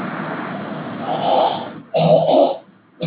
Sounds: Throat clearing